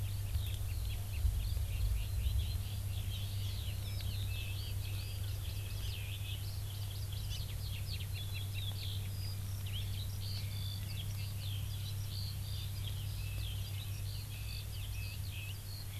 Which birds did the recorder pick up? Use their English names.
Eurasian Skylark, Red-billed Leiothrix